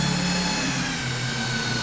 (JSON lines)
{"label": "anthrophony, boat engine", "recorder": "SoundTrap 500"}